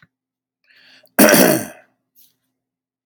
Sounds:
Cough